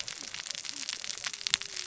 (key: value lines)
label: biophony, cascading saw
recorder: SoundTrap 600 or HydroMoth